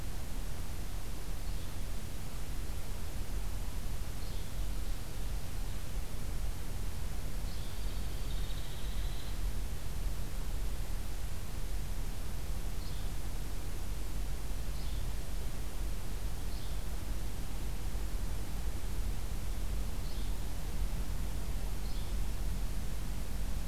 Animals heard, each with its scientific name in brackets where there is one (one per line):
Yellow-bellied Flycatcher (Empidonax flaviventris)
Hairy Woodpecker (Dryobates villosus)